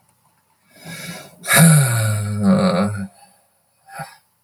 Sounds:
Sigh